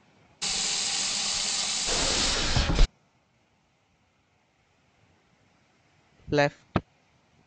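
At 0.4 seconds, the sound of a water tap is heard. Over it, at 1.9 seconds, wooden furniture moves. Finally, at 6.3 seconds, someone says "left."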